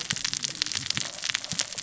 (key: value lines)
label: biophony, cascading saw
recorder: SoundTrap 600 or HydroMoth